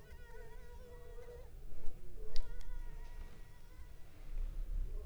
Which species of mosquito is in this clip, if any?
Culex pipiens complex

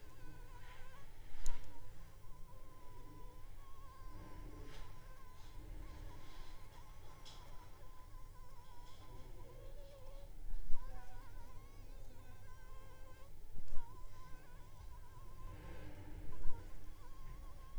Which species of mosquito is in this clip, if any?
Anopheles funestus s.s.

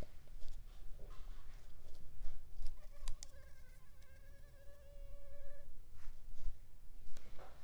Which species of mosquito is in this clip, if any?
Culex pipiens complex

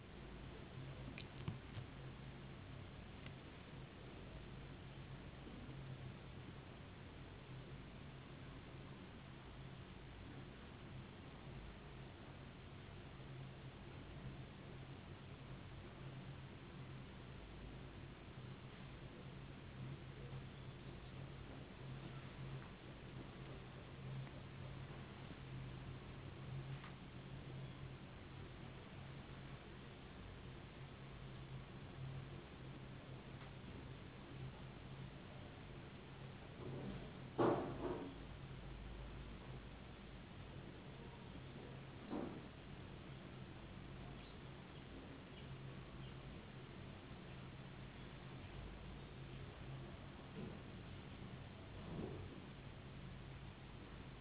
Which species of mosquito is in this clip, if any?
no mosquito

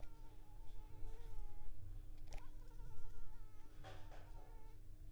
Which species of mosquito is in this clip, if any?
Anopheles arabiensis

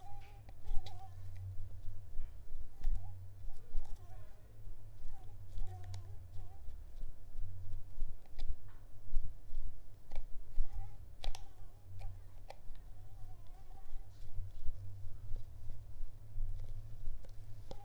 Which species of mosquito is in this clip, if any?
Mansonia uniformis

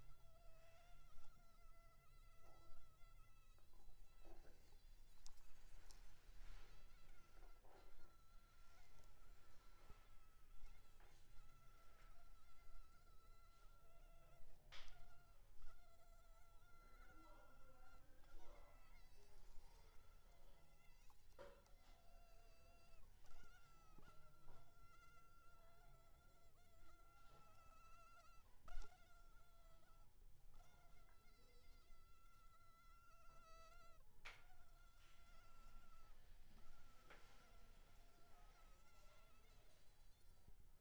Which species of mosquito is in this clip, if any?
Culex pipiens complex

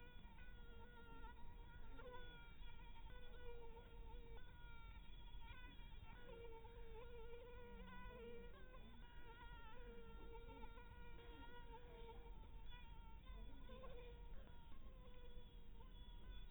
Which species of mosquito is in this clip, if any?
Anopheles dirus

